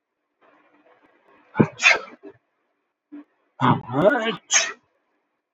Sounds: Sneeze